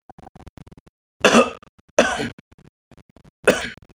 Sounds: Cough